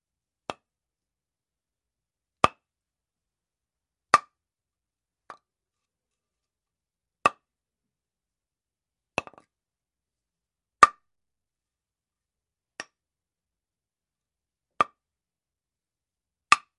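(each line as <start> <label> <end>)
0.4 A quiet click. 0.7
2.3 A click sound. 2.6
4.0 A loud click. 4.4
7.1 A click sound. 7.5
9.0 A quiet click. 9.4
10.7 A loud click. 11.0
12.7 A very quiet click. 13.0
14.6 A click sound. 15.0
16.4 A click sound. 16.7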